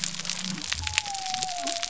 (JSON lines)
{"label": "biophony", "recorder": "SoundTrap 300"}